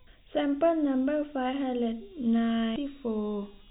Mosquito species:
no mosquito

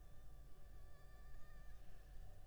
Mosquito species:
Anopheles funestus s.s.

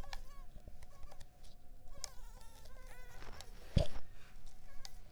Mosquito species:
Culex pipiens complex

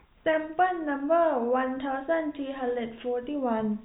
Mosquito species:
no mosquito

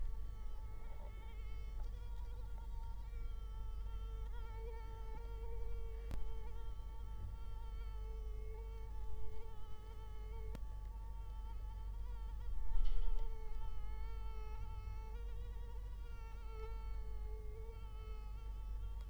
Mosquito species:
Culex quinquefasciatus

